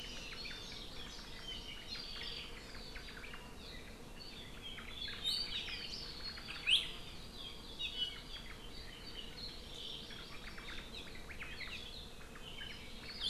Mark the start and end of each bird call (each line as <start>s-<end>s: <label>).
0.6s-1.8s: Hawaii Amakihi (Chlorodrepanis virens)
1.8s-3.5s: Omao (Myadestes obscurus)
4.7s-5.9s: Omao (Myadestes obscurus)
7.9s-8.3s: Apapane (Himatione sanguinea)
9.5s-10.8s: Hawaii Amakihi (Chlorodrepanis virens)
10.1s-11.8s: Omao (Myadestes obscurus)
12.2s-13.1s: Omao (Myadestes obscurus)